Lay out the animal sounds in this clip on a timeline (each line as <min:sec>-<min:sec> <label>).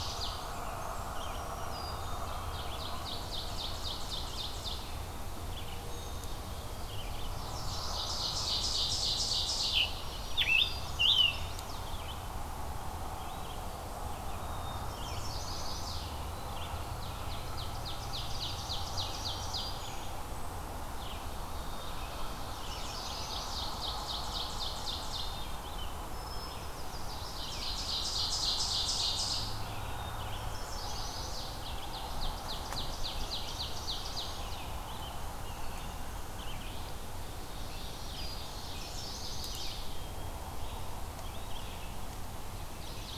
0:00.0-0:15.3 Red-eyed Vireo (Vireo olivaceus)
0:00.2-0:01.5 Blackburnian Warbler (Setophaga fusca)
0:01.0-0:02.3 Black-throated Green Warbler (Setophaga virens)
0:01.8-0:02.7 Black-capped Chickadee (Poecile atricapillus)
0:02.1-0:04.8 Ovenbird (Seiurus aurocapilla)
0:05.8-0:06.9 Black-capped Chickadee (Poecile atricapillus)
0:07.2-0:08.3 Chestnut-sided Warbler (Setophaga pensylvanica)
0:07.5-0:09.9 Ovenbird (Seiurus aurocapilla)
0:09.5-0:11.4 Scarlet Tanager (Piranga olivacea)
0:09.9-0:11.3 Black-throated Green Warbler (Setophaga virens)
0:10.8-0:11.8 Chestnut-sided Warbler (Setophaga pensylvanica)
0:14.3-0:15.4 Black-capped Chickadee (Poecile atricapillus)
0:14.8-0:16.1 Chestnut-sided Warbler (Setophaga pensylvanica)
0:15.8-0:16.5 Eastern Wood-Pewee (Contopus virens)
0:16.4-0:43.2 Red-eyed Vireo (Vireo olivaceus)
0:17.0-0:19.8 Ovenbird (Seiurus aurocapilla)
0:18.6-0:20.2 Black-throated Green Warbler (Setophaga virens)
0:21.5-0:22.6 Black-capped Chickadee (Poecile atricapillus)
0:22.3-0:23.7 Chestnut-sided Warbler (Setophaga pensylvanica)
0:23.1-0:25.4 Ovenbird (Seiurus aurocapilla)
0:25.9-0:27.5 unidentified call
0:27.3-0:29.6 Ovenbird (Seiurus aurocapilla)
0:29.8-0:30.6 Black-capped Chickadee (Poecile atricapillus)
0:30.4-0:31.6 Chestnut-sided Warbler (Setophaga pensylvanica)
0:31.6-0:34.2 Ovenbird (Seiurus aurocapilla)
0:37.4-0:39.1 Ovenbird (Seiurus aurocapilla)
0:37.5-0:38.7 Black-throated Green Warbler (Setophaga virens)
0:38.6-0:40.0 Chestnut-sided Warbler (Setophaga pensylvanica)
0:39.4-0:40.4 Black-capped Chickadee (Poecile atricapillus)
0:42.6-0:43.2 Chestnut-sided Warbler (Setophaga pensylvanica)